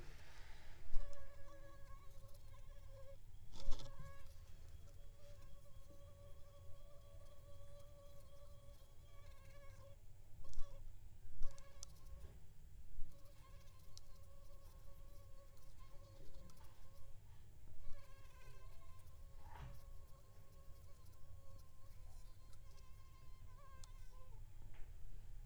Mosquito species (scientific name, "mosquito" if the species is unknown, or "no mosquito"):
Aedes aegypti